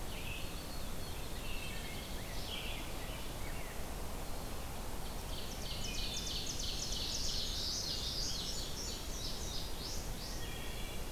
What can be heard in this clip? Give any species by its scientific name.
Vireo olivaceus, Spizella pusilla, Hylocichla mustelina, Pheucticus ludovicianus, Seiurus aurocapilla, Geothlypis trichas, Passerina cyanea